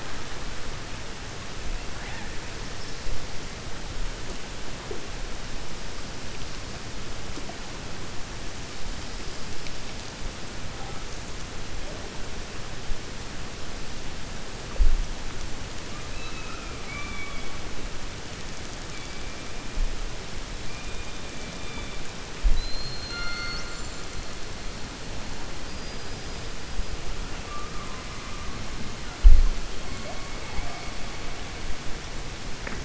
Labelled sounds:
15.9	17.5	killer whale, 1.1 to 4.0 kHz
25.6	26.1	killer whale, 4.8 to 5.1 kHz

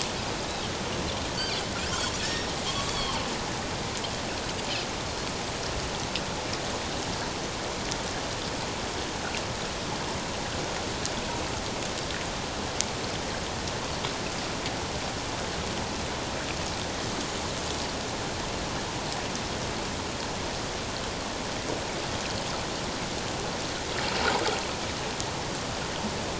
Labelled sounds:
1.4	3.2	Pacific white-sided dolphin, 1.0 to 5.6 kHz

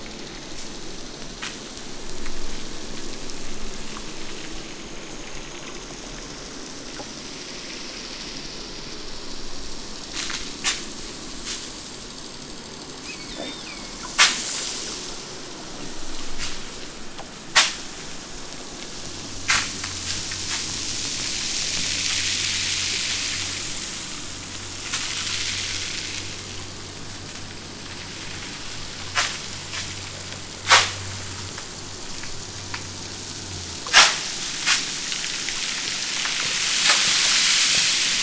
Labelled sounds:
12.9	14.0	killer whale, southern Alaska resident, 1.2 to 7.1 kHz

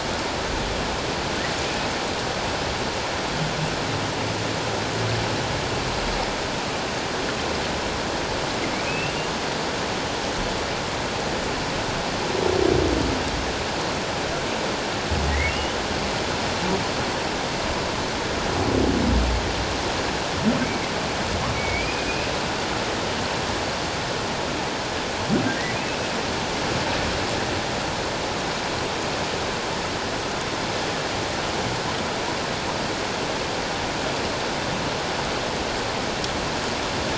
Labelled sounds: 8.9	9.2	humpback whale, 2.4 to 2.8 kHz
15.3	15.8	humpback whale, 1.8 to 3.1 kHz
20.6	22.1	humpback whale, 2.0 to 2.5 kHz

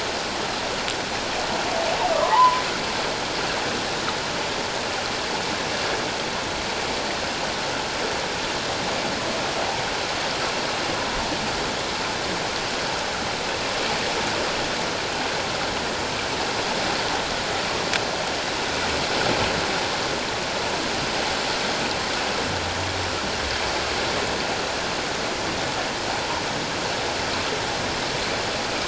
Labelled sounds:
2.1	2.6	humpback whale, 0.81 to 1.3 kHz

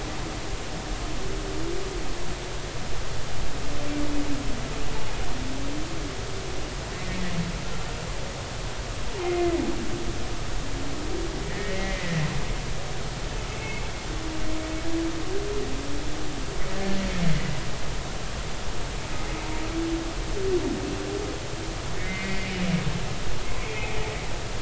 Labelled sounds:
10.2	12.2	humpback whale, 1.7 to 2.2 kHz
13.5	13.8	humpback whale, 2.1 to 2.7 kHz
17.3	17.5	humpback whale, 1.9 to 2.1 kHz
22.0	22.5	humpback whale, 1.8 to 2.2 kHz
23.7	24.0	humpback whale, 2.3 to 2.6 kHz

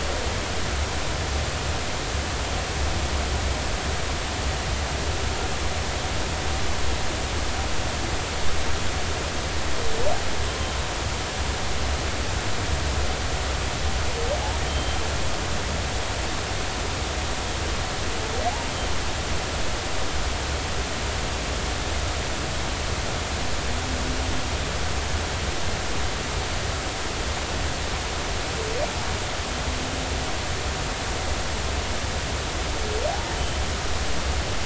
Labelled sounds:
14.7	15.0	humpback whale, 3.1 to 3.2 kHz

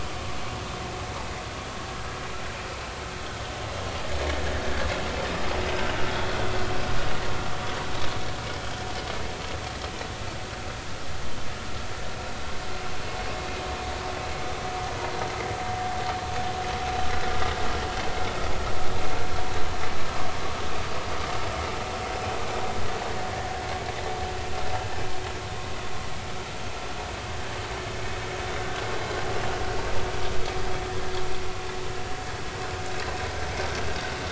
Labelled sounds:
6.1	6.3	vessel noise, 3.3 to 3.5 kHz

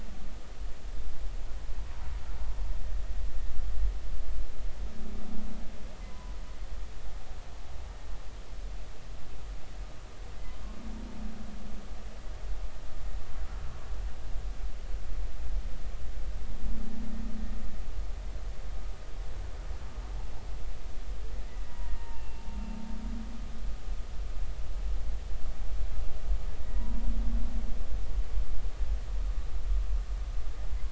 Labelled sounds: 6.0	6.3	humpback whale, 0.93 to 1.1 kHz
21.7	22.4	humpback whale, 0.86 to 2.8 kHz
26.6	27.1	humpback whale, 0.93 to 2.0 kHz

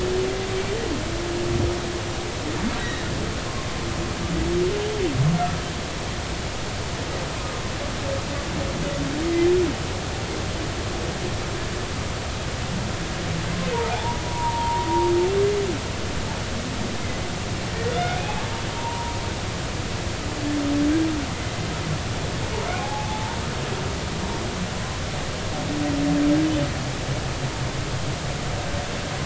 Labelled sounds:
2.8	3.1	humpback whale, 1.7 to 3.9 kHz
13.7	14.9	humpback whale, 0.80 to 1.0 kHz
18.2	19.2	humpback whale, 0.86 to 2.6 kHz
22.7	23.4	humpback whale, 0.80 to 1.1 kHz

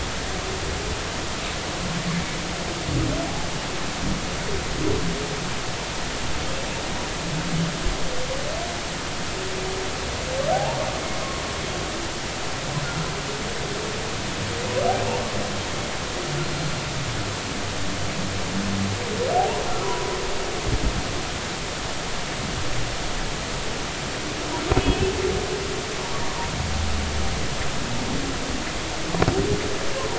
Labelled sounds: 10.5	10.8	humpback whale, 0.80 to 0.99 kHz
16.4	16.7	humpback whale, 4.1 to 4.3 kHz
19.4	20.2	humpback whale, 0.80 to 1.1 kHz
24.8	25.1	humpback whale, 2.5 to 3.0 kHz
26.3	26.5	humpback whale, 0.90 to 1.2 kHz

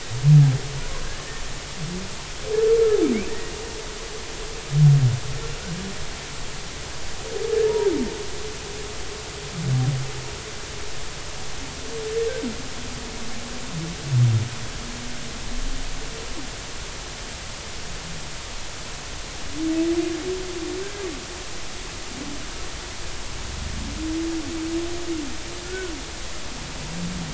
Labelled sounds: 1.0	1.4	humpback whale, 1.6 to 1.9 kHz
3.3	3.5	humpback whale, 1.7 to 2.0 kHz
7.6	7.9	humpback whale, 0.90 to 0.99 kHz
20.8	21.1	humpback whale, 1.5 to 1.7 kHz
25.6	25.9	humpback whale, 1.3 to 1.6 kHz

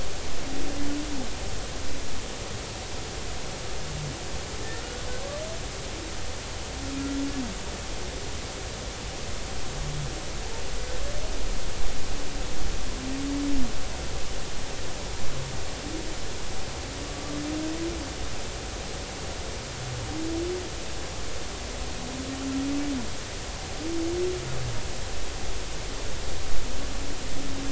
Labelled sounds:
4.7	5.0	humpback whale, 1.3 to 1.5 kHz

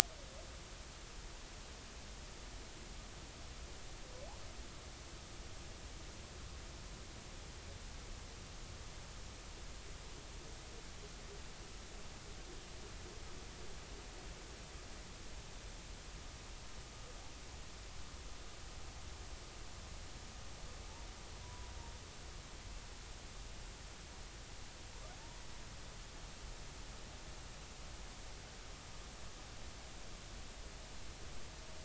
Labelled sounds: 21.4	21.7	humpback whale, 0.93 to 1.1 kHz

